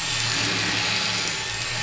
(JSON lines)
{"label": "anthrophony, boat engine", "recorder": "SoundTrap 500"}